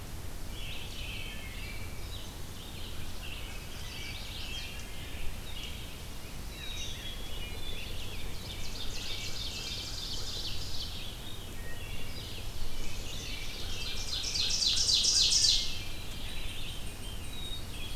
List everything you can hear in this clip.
American Crow, Red-eyed Vireo, Wood Thrush, American Robin, Chestnut-sided Warbler, Black-capped Chickadee, Ovenbird, Veery